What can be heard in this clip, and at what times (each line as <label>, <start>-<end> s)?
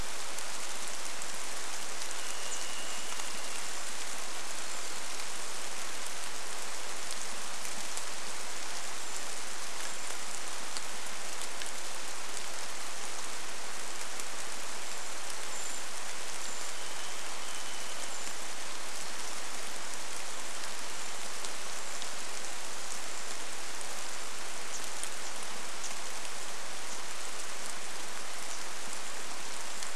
rain, 0-30 s
Chestnut-backed Chickadee call, 2-4 s
Varied Thrush song, 2-4 s
Brown Creeper call, 2-6 s
Brown Creeper call, 8-12 s
Brown Creeper call, 14-24 s
Varied Thrush song, 16-20 s